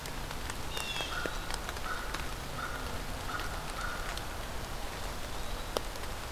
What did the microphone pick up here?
Blue Jay, American Crow, Eastern Wood-Pewee